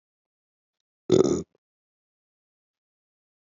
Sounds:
Sniff